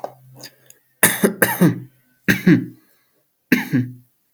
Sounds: Cough